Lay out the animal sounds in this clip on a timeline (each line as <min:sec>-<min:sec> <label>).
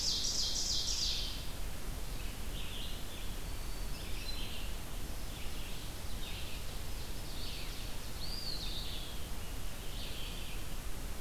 0:00.0-0:01.4 Ovenbird (Seiurus aurocapilla)
0:00.0-0:11.2 Red-eyed Vireo (Vireo olivaceus)
0:02.9-0:04.6 unidentified call
0:08.0-0:09.2 Eastern Wood-Pewee (Contopus virens)